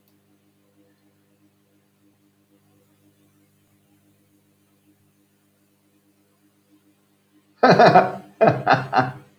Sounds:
Laughter